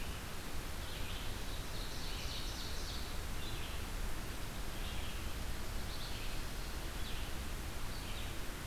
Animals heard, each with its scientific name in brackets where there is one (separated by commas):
Red-eyed Vireo (Vireo olivaceus), Ovenbird (Seiurus aurocapilla)